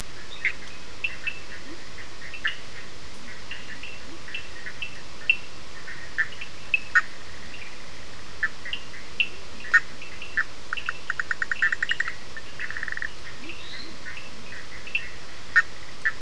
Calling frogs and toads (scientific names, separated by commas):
Boana bischoffi, Sphaenorhynchus surdus, Leptodactylus latrans, Dendropsophus minutus